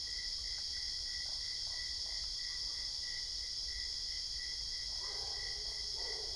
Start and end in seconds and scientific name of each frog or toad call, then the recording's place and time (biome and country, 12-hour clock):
1.1	2.6	Boana lundii
Cerrado, Brazil, 11:45pm